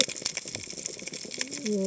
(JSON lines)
{"label": "biophony, cascading saw", "recorder": "HydroMoth"}